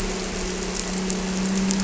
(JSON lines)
{"label": "anthrophony, boat engine", "recorder": "SoundTrap 300"}